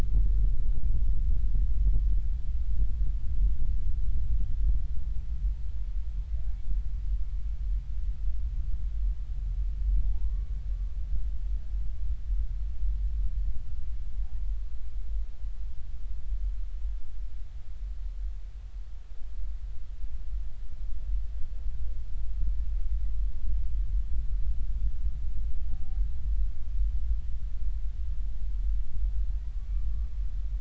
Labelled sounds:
10.1	10.5	humpback whale, 0.80 to 1.2 kHz
25.7	26.0	humpback whale, 0.80 to 0.90 kHz

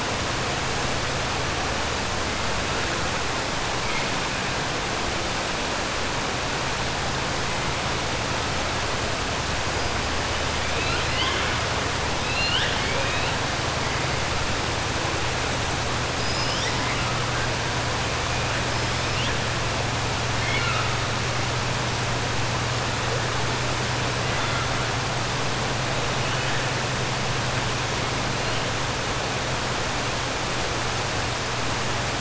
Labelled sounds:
10.7	11.5	killer whale, 1.1 to 5.1 kHz
12.2	13.3	killer whale, 1.5 to 4.5 kHz
20.3	20.9	killer whale, 1.3 to 4.3 kHz

